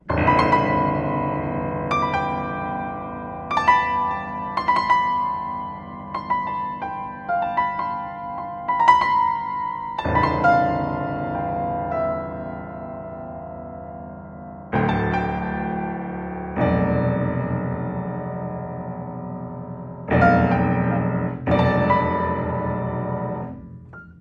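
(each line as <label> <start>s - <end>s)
A mixture of high and low piano notes. 0.0s - 1.2s
High-pitched piano notes. 1.8s - 2.5s
Repeated high-pitched piano notes. 3.4s - 9.8s
A mixture of high and low piano notes. 9.9s - 12.5s
Repeated high and low piano notes. 14.5s - 23.9s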